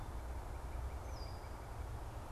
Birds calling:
Northern Cardinal (Cardinalis cardinalis)
Red-winged Blackbird (Agelaius phoeniceus)

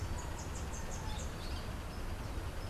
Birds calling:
Orange-fronted Parakeet (Eupsittula canicularis)

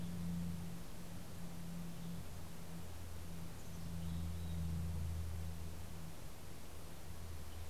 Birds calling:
Mountain Chickadee (Poecile gambeli)

